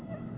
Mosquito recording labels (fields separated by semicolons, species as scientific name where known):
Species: Aedes albopictus; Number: one; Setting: insect culture